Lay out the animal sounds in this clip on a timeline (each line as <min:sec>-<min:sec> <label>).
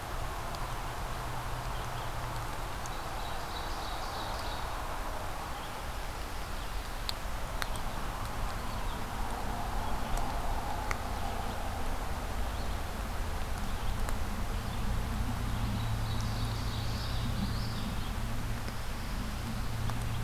0:02.5-0:04.8 Ovenbird (Seiurus aurocapilla)
0:15.6-0:17.5 Ovenbird (Seiurus aurocapilla)
0:17.3-0:17.9 Common Yellowthroat (Geothlypis trichas)